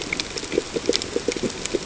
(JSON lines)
{"label": "ambient", "recorder": "HydroMoth"}